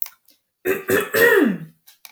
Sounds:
Throat clearing